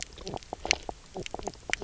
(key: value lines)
label: biophony, knock croak
recorder: SoundTrap 300